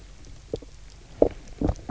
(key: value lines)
label: biophony, knock croak
recorder: SoundTrap 300